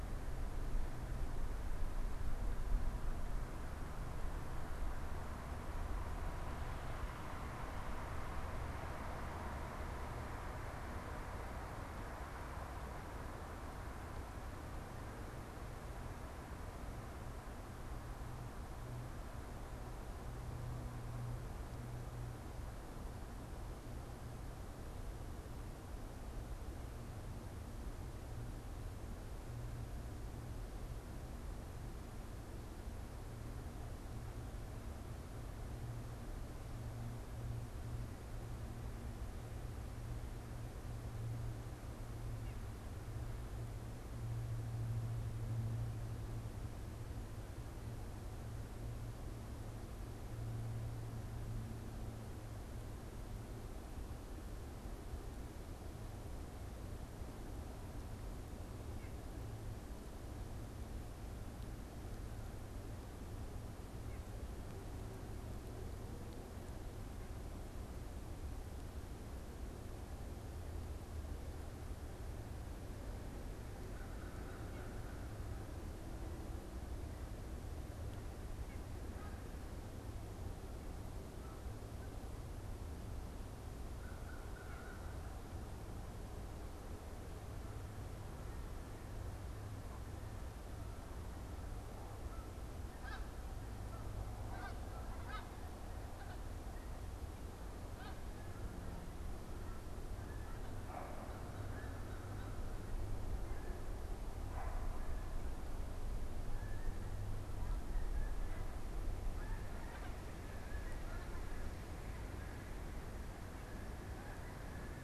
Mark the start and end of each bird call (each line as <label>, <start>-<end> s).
American Crow (Corvus brachyrhynchos), 73.8-75.5 s
White-breasted Nuthatch (Sitta carolinensis), 78.6-78.9 s
American Crow (Corvus brachyrhynchos), 83.9-85.3 s
Snow Goose (Anser caerulescens), 90.8-115.0 s